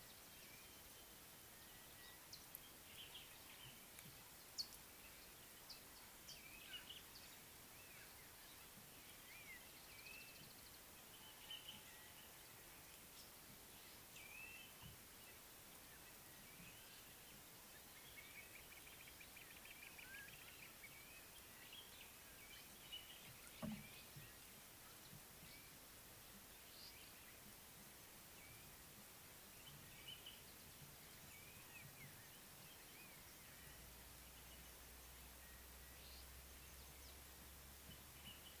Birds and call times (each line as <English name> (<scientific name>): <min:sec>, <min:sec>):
Mariqua Sunbird (Cinnyris mariquensis): 0:04.6
Blue-naped Mousebird (Urocolius macrourus): 0:14.3
Crowned Hornbill (Lophoceros alboterminatus): 0:19.7